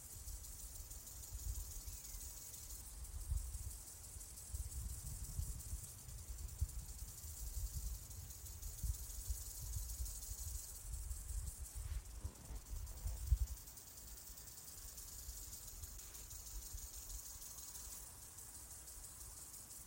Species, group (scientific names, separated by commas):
Gomphocerippus rufus, Orthoptera